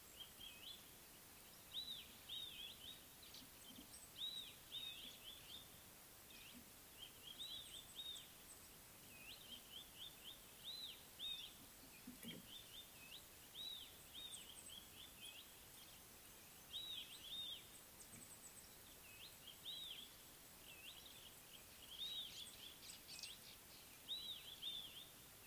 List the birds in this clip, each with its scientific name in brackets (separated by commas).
Red-backed Scrub-Robin (Cercotrichas leucophrys)